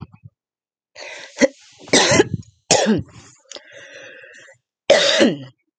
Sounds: Cough